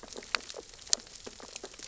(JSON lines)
{"label": "biophony, sea urchins (Echinidae)", "recorder": "SoundTrap 600 or HydroMoth"}